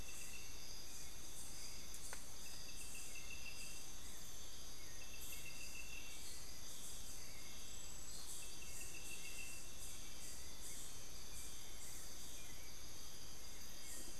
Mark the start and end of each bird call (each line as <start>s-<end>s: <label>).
0.0s-14.2s: Hauxwell's Thrush (Turdus hauxwelli)